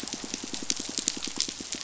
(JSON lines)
{"label": "biophony, pulse", "recorder": "SoundTrap 500"}